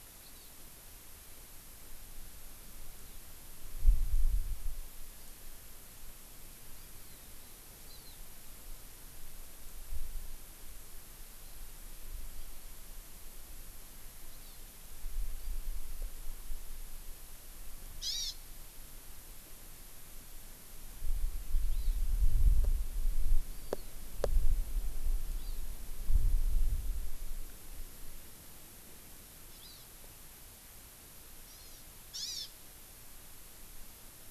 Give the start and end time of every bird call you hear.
0.2s-0.5s: Hawaii Amakihi (Chlorodrepanis virens)
7.8s-8.2s: Hawaii Amakihi (Chlorodrepanis virens)
14.3s-14.6s: Hawaii Amakihi (Chlorodrepanis virens)
18.0s-18.4s: Hawaii Amakihi (Chlorodrepanis virens)
21.7s-22.0s: Hawaii Amakihi (Chlorodrepanis virens)
23.5s-23.9s: Hawaii Amakihi (Chlorodrepanis virens)
25.3s-25.6s: Hawaii Amakihi (Chlorodrepanis virens)
29.6s-29.9s: Hawaii Amakihi (Chlorodrepanis virens)
31.4s-32.5s: Hawaii Amakihi (Chlorodrepanis virens)

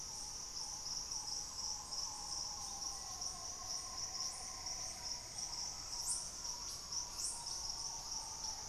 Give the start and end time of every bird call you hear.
0.0s-8.7s: Green Ibis (Mesembrinibis cayennensis)
2.7s-5.4s: Black-faced Antthrush (Formicarius analis)
8.0s-8.7s: unidentified bird

